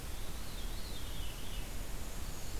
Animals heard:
Black-and-white Warbler (Mniotilta varia), Black-throated Blue Warbler (Setophaga caerulescens), Veery (Catharus fuscescens)

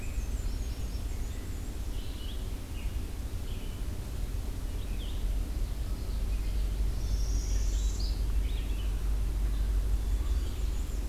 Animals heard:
Black-and-white Warbler (Mniotilta varia), Red-eyed Vireo (Vireo olivaceus), Common Yellowthroat (Geothlypis trichas), Northern Parula (Setophaga americana)

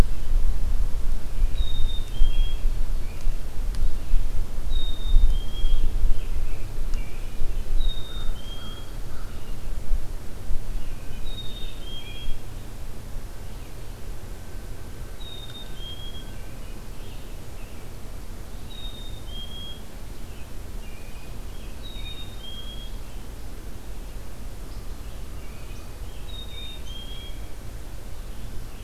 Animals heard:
Red-eyed Vireo (Vireo olivaceus), American Robin (Turdus migratorius), Black-capped Chickadee (Poecile atricapillus), American Crow (Corvus brachyrhynchos)

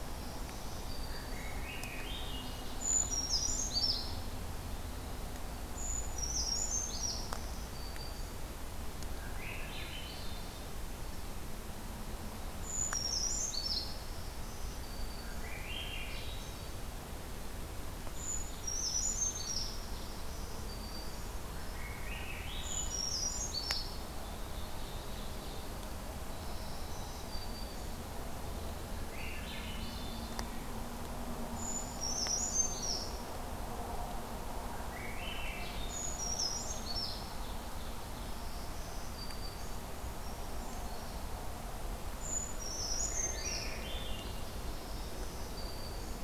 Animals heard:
Brown Creeper (Certhia americana), Black-throated Green Warbler (Setophaga virens), Swainson's Thrush (Catharus ustulatus), Ovenbird (Seiurus aurocapilla)

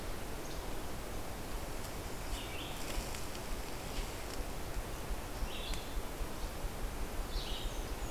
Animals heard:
Blackburnian Warbler (Setophaga fusca), Blue-headed Vireo (Vireo solitarius)

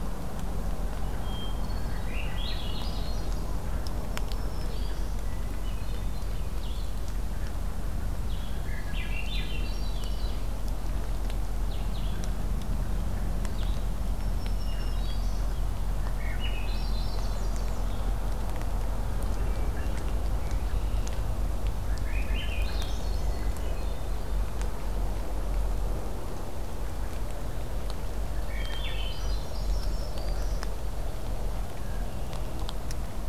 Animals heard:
Hermit Thrush (Catharus guttatus), Black-throated Green Warbler (Setophaga virens), Red-winged Blackbird (Agelaius phoeniceus), Swainson's Thrush (Catharus ustulatus), Blue-headed Vireo (Vireo solitarius)

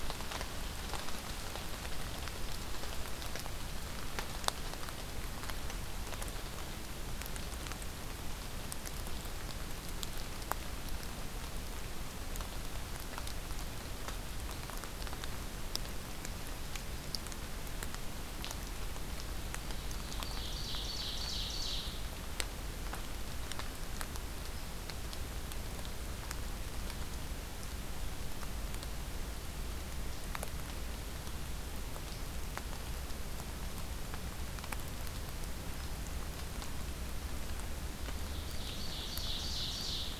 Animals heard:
Ovenbird (Seiurus aurocapilla)

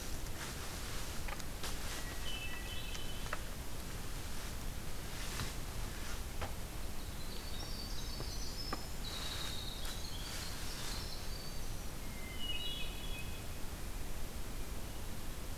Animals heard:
Hermit Thrush (Catharus guttatus), Winter Wren (Troglodytes hiemalis)

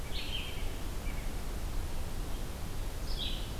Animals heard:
Blue-headed Vireo (Vireo solitarius)

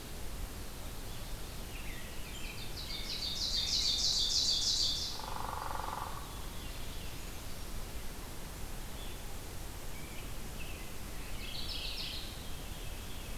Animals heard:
Mourning Warbler (Geothlypis philadelphia), American Robin (Turdus migratorius), Hairy Woodpecker (Dryobates villosus), Veery (Catharus fuscescens), Ovenbird (Seiurus aurocapilla)

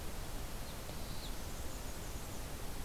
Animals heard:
Black-and-white Warbler (Mniotilta varia), Magnolia Warbler (Setophaga magnolia)

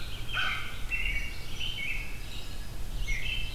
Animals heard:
American Crow (Corvus brachyrhynchos), Eastern Kingbird (Tyrannus tyrannus), Red-eyed Vireo (Vireo olivaceus), American Robin (Turdus migratorius)

